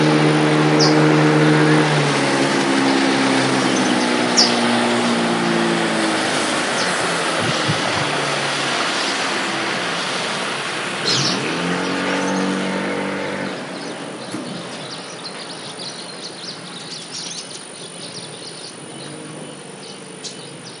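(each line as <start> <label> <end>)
0.0 An engine running loudly and gradually decreasing in volume. 20.8
0.7 A bird chirps loudly in a rainforest. 1.0
4.3 A bird chirps loudly in a rainforest. 4.6
11.0 Birds chirp continuously in a rainforest. 20.8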